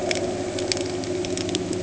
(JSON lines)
{"label": "anthrophony, boat engine", "recorder": "HydroMoth"}